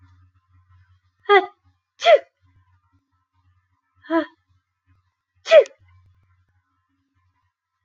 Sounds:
Sneeze